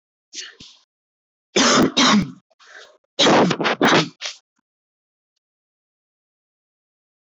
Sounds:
Laughter